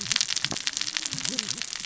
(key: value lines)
label: biophony, cascading saw
recorder: SoundTrap 600 or HydroMoth